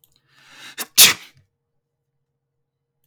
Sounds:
Sneeze